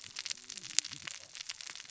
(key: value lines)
label: biophony, cascading saw
recorder: SoundTrap 600 or HydroMoth